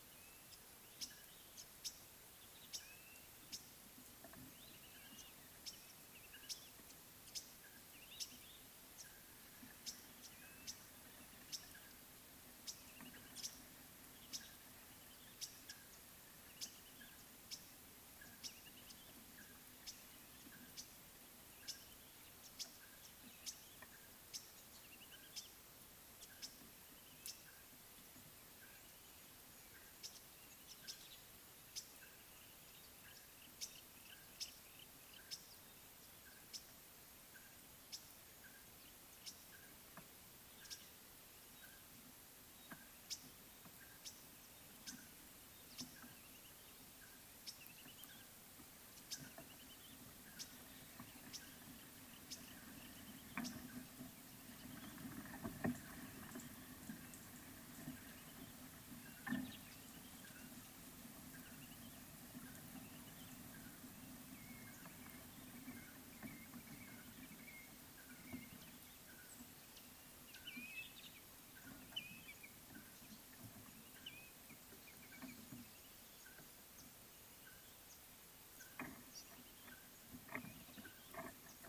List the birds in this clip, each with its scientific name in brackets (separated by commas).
White-headed Buffalo-Weaver (Dinemellia dinemelli), Blue-naped Mousebird (Urocolius macrourus), Red-backed Scrub-Robin (Cercotrichas leucophrys), Green-winged Pytilia (Pytilia melba), Yellow-breasted Apalis (Apalis flavida)